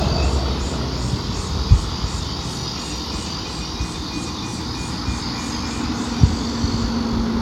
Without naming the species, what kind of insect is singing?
cicada